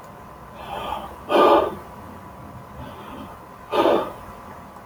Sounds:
Sigh